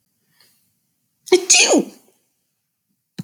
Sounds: Sneeze